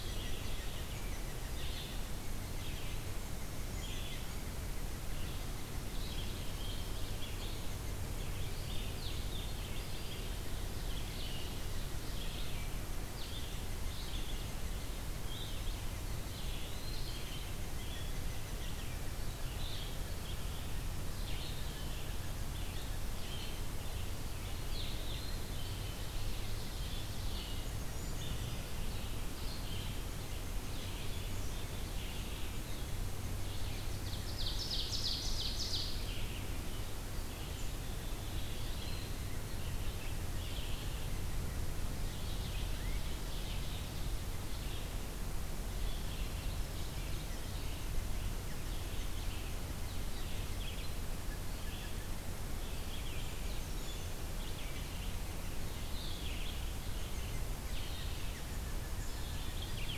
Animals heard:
Red-eyed Vireo (Vireo olivaceus), Eastern Wood-Pewee (Contopus virens), Brown Creeper (Certhia americana), Blue-headed Vireo (Vireo solitarius), Ovenbird (Seiurus aurocapilla), Black-capped Chickadee (Poecile atricapillus)

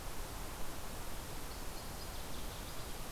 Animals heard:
Northern Waterthrush (Parkesia noveboracensis)

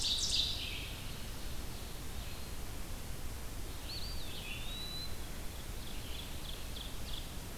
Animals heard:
Red-eyed Vireo (Vireo olivaceus), Eastern Wood-Pewee (Contopus virens), Ovenbird (Seiurus aurocapilla)

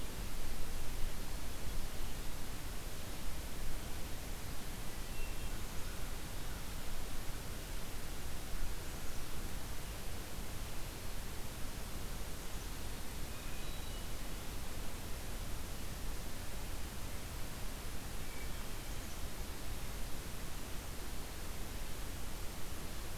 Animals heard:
Black-capped Chickadee (Poecile atricapillus), Hermit Thrush (Catharus guttatus), American Crow (Corvus brachyrhynchos)

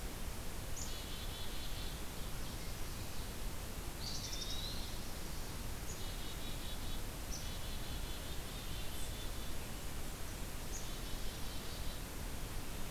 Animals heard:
Eastern Wood-Pewee (Contopus virens), Black-capped Chickadee (Poecile atricapillus), Wood Thrush (Hylocichla mustelina)

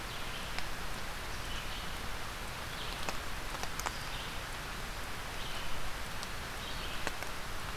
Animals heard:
Red-eyed Vireo (Vireo olivaceus)

